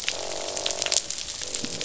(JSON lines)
{"label": "biophony, croak", "recorder": "SoundTrap 500"}